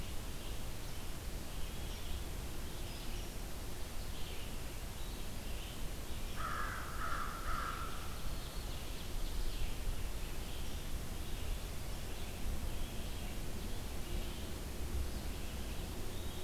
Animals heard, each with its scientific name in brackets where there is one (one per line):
American Crow (Corvus brachyrhynchos)
Ovenbird (Seiurus aurocapilla)
Red-eyed Vireo (Vireo olivaceus)